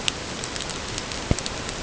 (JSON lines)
{"label": "ambient", "recorder": "HydroMoth"}